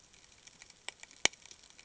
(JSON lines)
{"label": "ambient", "recorder": "HydroMoth"}